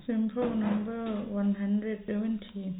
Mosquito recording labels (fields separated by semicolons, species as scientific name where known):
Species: no mosquito; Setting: cup